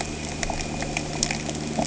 {"label": "anthrophony, boat engine", "recorder": "HydroMoth"}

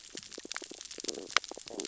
{"label": "biophony, stridulation", "recorder": "SoundTrap 600 or HydroMoth"}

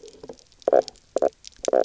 {"label": "biophony, knock croak", "recorder": "SoundTrap 300"}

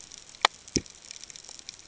{"label": "ambient", "recorder": "HydroMoth"}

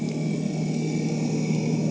{"label": "anthrophony, boat engine", "recorder": "HydroMoth"}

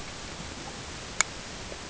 {"label": "ambient", "recorder": "HydroMoth"}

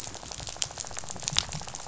{"label": "biophony, rattle", "recorder": "SoundTrap 500"}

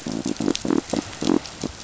{"label": "biophony", "recorder": "SoundTrap 500"}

